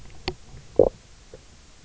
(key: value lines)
label: biophony, knock croak
recorder: SoundTrap 300